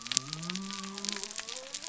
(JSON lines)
{"label": "biophony", "recorder": "SoundTrap 300"}